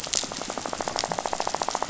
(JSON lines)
{"label": "biophony, rattle", "recorder": "SoundTrap 500"}